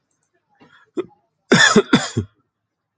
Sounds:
Cough